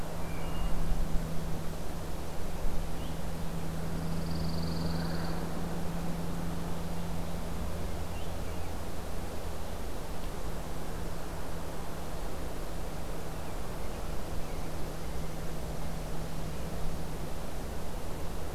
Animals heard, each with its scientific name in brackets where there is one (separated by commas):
Wood Thrush (Hylocichla mustelina), Pine Warbler (Setophaga pinus)